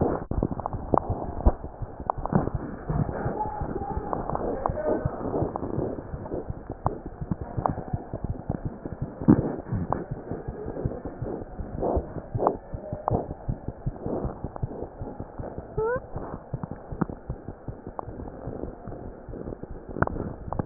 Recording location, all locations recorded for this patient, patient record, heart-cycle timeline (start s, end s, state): aortic valve (AV)
aortic valve (AV)+mitral valve (MV)
#Age: Infant
#Sex: Male
#Height: 57.0 cm
#Weight: 4.52 kg
#Pregnancy status: False
#Murmur: Absent
#Murmur locations: nan
#Most audible location: nan
#Systolic murmur timing: nan
#Systolic murmur shape: nan
#Systolic murmur grading: nan
#Systolic murmur pitch: nan
#Systolic murmur quality: nan
#Diastolic murmur timing: nan
#Diastolic murmur shape: nan
#Diastolic murmur grading: nan
#Diastolic murmur pitch: nan
#Diastolic murmur quality: nan
#Outcome: Abnormal
#Campaign: 2015 screening campaign
0.00	13.34	unannotated
13.34	13.46	diastole
13.46	13.56	S1
13.56	13.66	systole
13.66	13.73	S2
13.73	13.84	diastole
13.84	13.94	S1
13.94	14.04	systole
14.04	14.09	S2
14.09	14.22	diastole
14.22	14.30	S1
14.30	14.42	systole
14.42	14.49	S2
14.49	14.62	diastole
14.62	14.70	S1
14.70	14.81	systole
14.81	14.86	S2
14.86	15.00	diastole
15.00	15.10	S1
15.10	15.19	systole
15.19	15.27	S2
15.27	15.37	diastole
15.37	15.44	S1
15.44	15.56	systole
15.56	15.61	S2
15.61	15.78	diastole
15.78	20.66	unannotated